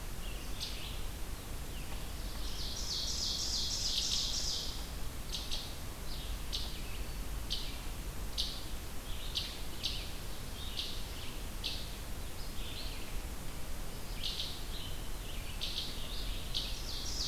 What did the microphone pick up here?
Red-eyed Vireo, Ovenbird